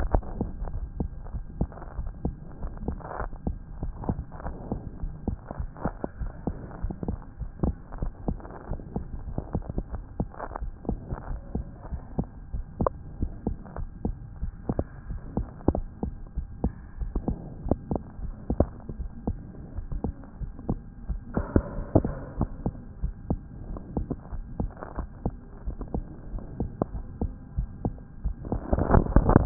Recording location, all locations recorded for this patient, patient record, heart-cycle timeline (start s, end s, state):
aortic valve (AV)
aortic valve (AV)+pulmonary valve (PV)+tricuspid valve (TV)+mitral valve (MV)
#Age: Child
#Sex: Male
#Height: 99.0 cm
#Weight: 13.6 kg
#Pregnancy status: False
#Murmur: Absent
#Murmur locations: nan
#Most audible location: nan
#Systolic murmur timing: nan
#Systolic murmur shape: nan
#Systolic murmur grading: nan
#Systolic murmur pitch: nan
#Systolic murmur quality: nan
#Diastolic murmur timing: nan
#Diastolic murmur shape: nan
#Diastolic murmur grading: nan
#Diastolic murmur pitch: nan
#Diastolic murmur quality: nan
#Outcome: Normal
#Campaign: 2014 screening campaign
0.00	1.23	unannotated
1.23	1.34	diastole
1.34	1.44	S1
1.44	1.58	systole
1.58	1.68	S2
1.68	1.98	diastole
1.98	2.10	S1
2.10	2.24	systole
2.24	2.34	S2
2.34	2.62	diastole
2.62	2.73	S1
2.73	2.87	systole
2.87	2.97	S2
2.97	3.21	diastole
3.21	3.32	S1
3.32	3.46	systole
3.46	3.56	S2
3.56	3.82	diastole
3.82	3.92	S1
3.92	4.08	systole
4.08	4.20	S2
4.20	4.44	diastole
4.44	4.56	S1
4.56	4.70	systole
4.70	4.80	S2
4.80	5.02	diastole
5.02	5.12	S1
5.12	5.26	systole
5.26	5.38	S2
5.38	5.58	diastole
5.58	5.70	S1
5.70	5.84	systole
5.84	5.94	S2
5.94	6.20	diastole
6.20	6.32	S1
6.32	6.46	systole
6.46	6.54	S2
6.54	6.82	diastole
6.82	6.94	S1
6.94	7.08	systole
7.08	7.18	S2
7.18	7.40	diastole
7.40	7.50	S1
7.50	7.62	systole
7.62	7.74	S2
7.74	8.00	diastole
8.00	8.12	S1
8.12	8.26	systole
8.26	8.38	S2
8.38	8.70	diastole
8.70	8.80	S1
8.80	8.94	systole
8.94	9.04	S2
9.04	9.28	diastole
9.28	9.40	S1
9.40	9.54	systole
9.54	9.64	S2
9.64	9.92	diastole
9.92	10.02	S1
10.02	10.18	systole
10.18	10.28	S2
10.28	10.60	diastole
10.60	10.72	S1
10.72	10.88	systole
10.88	10.98	S2
10.98	11.30	diastole
11.30	11.40	S1
11.40	11.54	systole
11.54	11.66	S2
11.66	11.92	diastole
11.92	12.02	S1
12.02	12.18	systole
12.18	12.26	S2
12.26	12.54	diastole
12.54	12.64	S1
12.64	12.80	systole
12.80	12.90	S2
12.90	13.20	diastole
13.20	13.32	S1
13.32	13.46	systole
13.46	13.56	S2
13.56	13.78	diastole
13.78	13.90	S1
13.90	14.04	systole
14.04	14.16	S2
14.16	14.42	diastole
14.42	14.52	S1
14.52	14.70	systole
14.70	14.82	S2
14.82	15.08	diastole
15.08	15.20	S1
15.20	15.36	systole
15.36	15.46	S2
15.46	15.72	diastole
15.72	15.84	S1
15.84	16.02	systole
16.02	16.12	S2
16.12	16.36	diastole
16.36	16.48	S1
16.48	16.62	systole
16.62	16.72	S2
16.72	17.00	diastole
17.00	17.12	S1
17.12	17.28	systole
17.28	17.38	S2
17.38	17.66	diastole
17.66	17.78	S1
17.78	17.90	systole
17.90	18.00	S2
18.00	18.22	diastole
18.22	18.34	S1
18.34	18.50	systole
18.50	18.60	S2
18.60	18.98	diastole
18.98	19.10	S1
19.10	19.26	systole
19.26	19.38	S2
19.38	19.76	diastole
19.76	19.86	S1
19.86	20.04	systole
20.04	20.12	S2
20.12	20.42	diastole
20.42	20.52	S1
20.52	20.68	systole
20.68	20.80	S2
20.80	21.08	diastole
21.08	29.46	unannotated